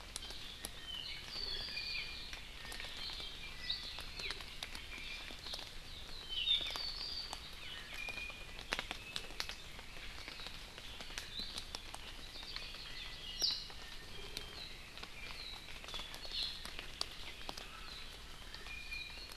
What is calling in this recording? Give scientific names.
Himatione sanguinea, Chlorodrepanis virens, Drepanis coccinea, Loxops mana, Zosterops japonicus